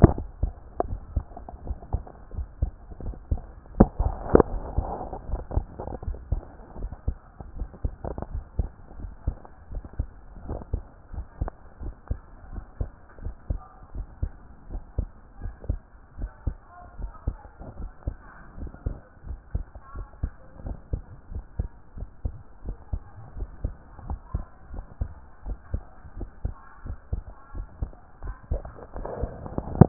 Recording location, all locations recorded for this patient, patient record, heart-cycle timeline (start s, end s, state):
tricuspid valve (TV)
aortic valve (AV)+pulmonary valve (PV)+tricuspid valve (TV)+mitral valve (MV)
#Age: Child
#Sex: Female
#Height: 152.0 cm
#Weight: 41.0 kg
#Pregnancy status: False
#Murmur: Absent
#Murmur locations: nan
#Most audible location: nan
#Systolic murmur timing: nan
#Systolic murmur shape: nan
#Systolic murmur grading: nan
#Systolic murmur pitch: nan
#Systolic murmur quality: nan
#Diastolic murmur timing: nan
#Diastolic murmur shape: nan
#Diastolic murmur grading: nan
#Diastolic murmur pitch: nan
#Diastolic murmur quality: nan
#Outcome: Abnormal
#Campaign: 2014 screening campaign
0.22	0.40	systole
0.40	0.54	S2
0.54	0.86	diastole
0.86	1.00	S1
1.00	1.14	systole
1.14	1.26	S2
1.26	1.64	diastole
1.64	1.78	S1
1.78	1.92	systole
1.92	2.04	S2
2.04	2.36	diastole
2.36	2.48	S1
2.48	2.60	systole
2.60	2.72	S2
2.72	3.04	diastole
3.04	3.16	S1
3.16	3.30	systole
3.30	3.42	S2
3.42	3.76	diastole
3.76	3.90	S1
3.90	3.98	systole
3.98	4.16	S2
4.16	4.50	diastole
4.50	4.64	S1
4.64	4.76	systole
4.76	4.92	S2
4.92	5.28	diastole
5.28	5.42	S1
5.42	5.54	systole
5.54	5.68	S2
5.68	6.06	diastole
6.06	6.18	S1
6.18	6.30	systole
6.30	6.42	S2
6.42	6.80	diastole
6.80	6.92	S1
6.92	7.06	systole
7.06	7.16	S2
7.16	7.56	diastole
7.56	7.68	S1
7.68	7.84	systole
7.84	7.94	S2
7.94	8.32	diastole
8.32	8.44	S1
8.44	8.58	systole
8.58	8.70	S2
8.70	9.02	diastole
9.02	9.14	S1
9.14	9.26	systole
9.26	9.36	S2
9.36	9.72	diastole
9.72	9.84	S1
9.84	9.98	systole
9.98	10.08	S2
10.08	10.46	diastole
10.46	10.60	S1
10.60	10.72	systole
10.72	10.82	S2
10.82	11.14	diastole
11.14	11.26	S1
11.26	11.40	systole
11.40	11.50	S2
11.50	11.82	diastole
11.82	11.94	S1
11.94	12.10	systole
12.10	12.18	S2
12.18	12.52	diastole
12.52	12.64	S1
12.64	12.80	systole
12.80	12.90	S2
12.90	13.24	diastole
13.24	13.36	S1
13.36	13.50	systole
13.50	13.60	S2
13.60	13.96	diastole
13.96	14.08	S1
14.08	14.22	systole
14.22	14.32	S2
14.32	14.70	diastole
14.70	14.82	S1
14.82	14.98	systole
14.98	15.10	S2
15.10	15.42	diastole
15.42	15.54	S1
15.54	15.68	systole
15.68	15.80	S2
15.80	16.20	diastole
16.20	16.32	S1
16.32	16.48	systole
16.48	16.58	S2
16.58	16.98	diastole
16.98	17.12	S1
17.12	17.28	systole
17.28	17.38	S2
17.38	17.78	diastole
17.78	17.90	S1
17.90	18.06	systole
18.06	18.16	S2
18.16	18.58	diastole
18.58	18.70	S1
18.70	18.84	systole
18.84	18.94	S2
18.94	19.28	diastole
19.28	19.40	S1
19.40	19.54	systole
19.54	19.64	S2
19.64	19.96	diastole
19.96	20.06	S1
20.06	20.22	systole
20.22	20.32	S2
20.32	20.66	diastole
20.66	20.78	S1
20.78	20.92	systole
20.92	21.02	S2
21.02	21.32	diastole
21.32	21.44	S1
21.44	21.58	systole
21.58	21.68	S2
21.68	21.98	diastole
21.98	22.08	S1
22.08	22.24	systole
22.24	22.34	S2
22.34	22.66	diastole
22.66	22.76	S1
22.76	22.92	systole
22.92	23.02	S2
23.02	23.38	diastole
23.38	23.50	S1
23.50	23.62	systole
23.62	23.74	S2
23.74	24.08	diastole
24.08	24.20	S1
24.20	24.34	systole
24.34	24.44	S2
24.44	24.74	diastole
24.74	24.86	S1
24.86	25.02	systole
25.02	25.12	S2
25.12	25.46	diastole
25.46	25.58	S1
25.58	25.72	systole
25.72	25.82	S2
25.82	26.18	diastole
26.18	26.30	S1
26.30	26.44	systole
26.44	26.54	S2
26.54	26.86	diastole
26.86	26.98	S1
26.98	27.12	systole
27.12	27.24	S2
27.24	27.56	diastole
27.56	27.66	S1
27.66	27.80	systole
27.80	27.90	S2
27.90	28.24	diastole
28.24	28.36	S1
28.36	28.52	systole
28.52	28.62	S2
28.62	28.96	diastole
28.96	29.08	S1
29.08	29.20	systole
29.20	29.32	S2
29.32	29.70	diastole
29.70	29.89	S1